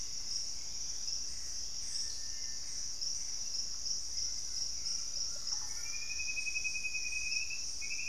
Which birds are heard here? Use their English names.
Gray Antbird, Hauxwell's Thrush, Collared Trogon, Russet-backed Oropendola